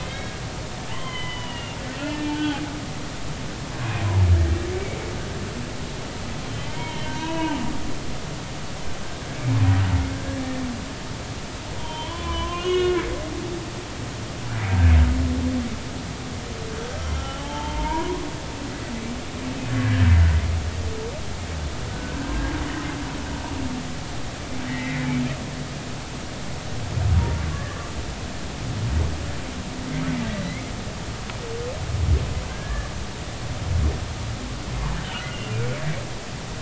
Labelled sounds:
0.9	2.6	humpback whale, 0.86 to 3.4 kHz
6.8	8.1	humpback whale, 0.83 to 3.2 kHz
11.8	13.1	humpback whale, 0.90 to 6.3 kHz
17.2	18.2	humpback whale, 0.83 to 3.2 kHz
21.9	22.6	humpback whale, 1.4 to 1.7 kHz
24.7	25.1	humpback whale, 1.8 to 2.1 kHz
27.5	27.8	humpback whale, 1.6 to 1.9 kHz
30.2	30.6	humpback whale, 1.9 to 2.3 kHz
32.5	32.9	humpback whale, 1.5 to 1.8 kHz
35.0	35.6	humpback whale, 2.7 to 3.1 kHz

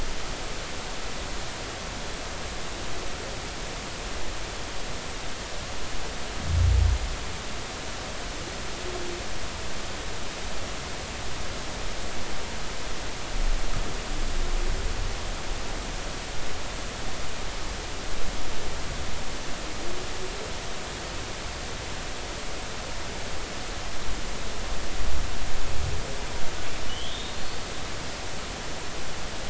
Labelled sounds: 26.9	27.4	humpback whale, 2.8 to 3.8 kHz
28.3	28.6	humpback whale, 4.2 to 4.6 kHz

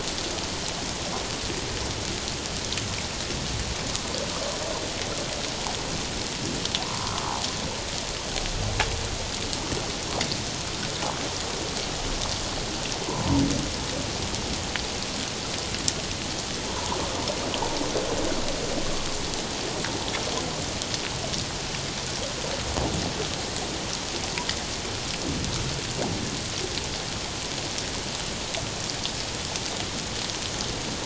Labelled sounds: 6.8	7.3	humpback whale, 0.91 to 1.4 kHz
13.1	13.4	humpback whale, 0.88 to 1.1 kHz
16.7	17.0	humpback whale, 0.78 to 1.2 kHz

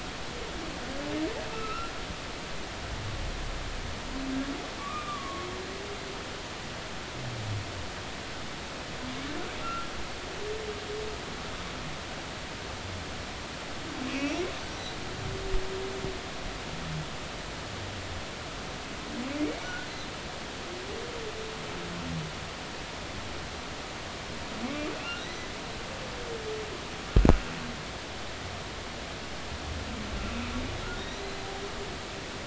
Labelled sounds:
1.5	1.9	humpback whale, 1.2 to 1.5 kHz
4.8	5.5	humpback whale, 1.0 to 1.3 kHz
9.6	9.9	humpback whale, 1.3 to 1.5 kHz
15.1	15.4	humpback whale, 2.1 to 3.0 kHz
25.2	25.5	humpback whale, 3.6 to 4.1 kHz
31.0	31.2	humpback whale, 3.6 to 4.0 kHz

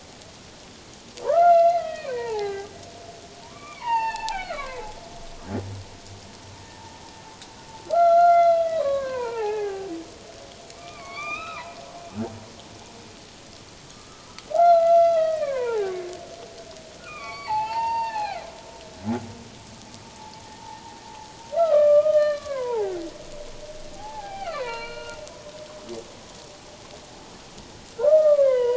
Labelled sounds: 1.2	2.7	humpback whale, 0.78 to 4.2 kHz
3.4	4.8	humpback whale, 0.78 to 4.7 kHz
7.9	9.9	humpback whale, 0.78 to 4.2 kHz
10.7	11.6	humpback whale, 0.97 to 5.0 kHz
13.9	16.1	humpback whale, 0.78 to 4.2 kHz
17.0	18.5	humpback whale, 0.78 to 4.7 kHz
21.5	22.9	humpback whale, 0.78 to 4.2 kHz
23.9	25.2	humpback whale, 0.78 to 4.3 kHz

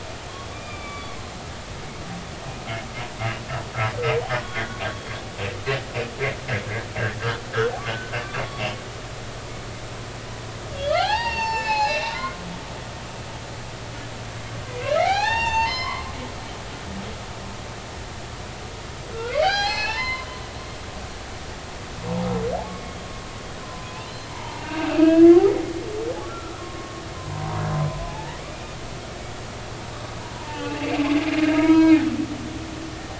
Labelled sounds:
0.5	1.2	humpback whale, 1.1 to 3.6 kHz
4.4	4.8	humpback whale, 1.4 to 3.5 kHz
7.2	7.5	humpback whale, 1.1 to 1.6 kHz
10.9	12.4	humpback whale, 0.80 to 6.9 kHz
14.7	16.1	humpback whale, 0.80 to 6.4 kHz
19.1	20.3	humpback whale, 0.80 to 5.4 kHz
22.7	25.3	humpback whale, 0.83 to 2.8 kHz
26.3	27.5	humpback whale, 0.90 to 1.5 kHz
28.1	28.4	humpback whale, 0.80 to 0.99 kHz
30.4	31.0	humpback whale, 0.83 to 2.8 kHz
31.5	32.0	humpback whale, 0.90 to 3.3 kHz

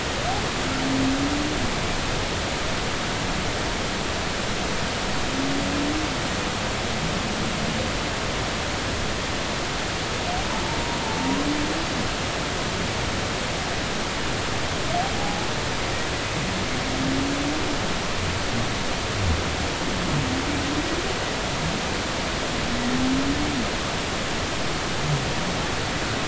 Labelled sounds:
15.2	15.5	humpback whale, 0.80 to 0.90 kHz

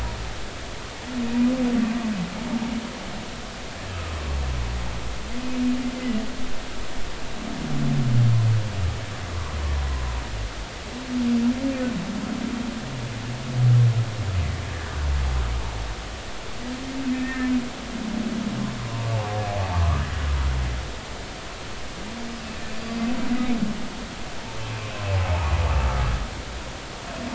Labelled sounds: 4.1	4.4	humpback whale, 1.0 to 1.2 kHz
17.1	17.5	humpback whale, 1.7 to 2.7 kHz
19.5	20.1	humpback whale, 0.80 to 1.3 kHz
22.8	23.0	humpback whale, 4.7 to 4.9 kHz

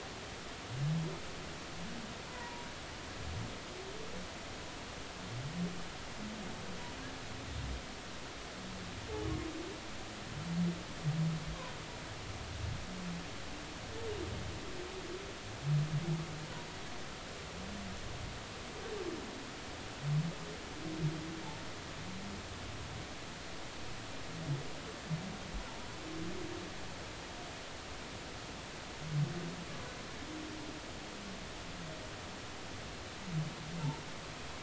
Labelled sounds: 2.3	2.7	humpback whale, 0.90 to 1.1 kHz

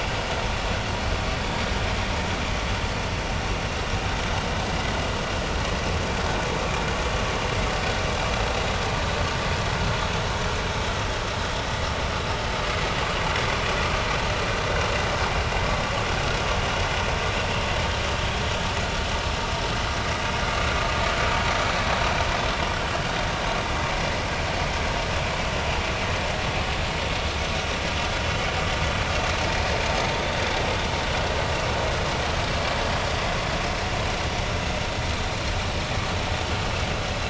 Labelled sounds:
30.1	30.5	vessel noise, 3.5 to 3.7 kHz

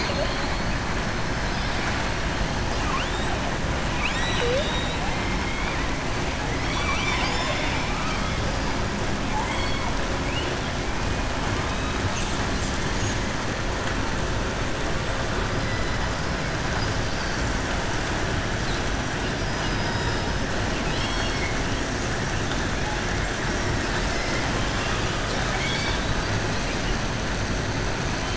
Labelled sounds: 6.5	8.3	killer whale, southern resident, 0.67 to 7.4 kHz
9.2	9.8	killer whale, southern resident, 0.84 to 4.5 kHz
19.4	20.4	killer whale, southern resident, 3.7 to 5.6 kHz
20.7	21.6	killer whale, southern resident, 2.0 to 5.9 kHz
24.1	26.3	killer whale, southern resident, 0.84 to 7.2 kHz

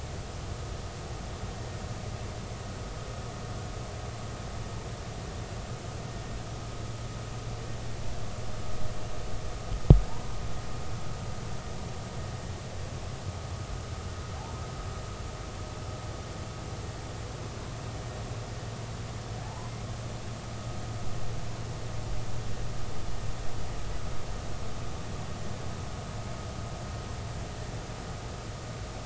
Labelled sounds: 19.4	19.7	humpback whale, 0.80 to 1.1 kHz

